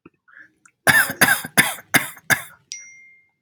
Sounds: Cough